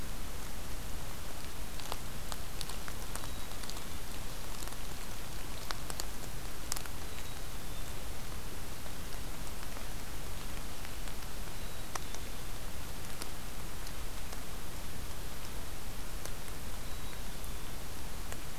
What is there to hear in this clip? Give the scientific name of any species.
Poecile atricapillus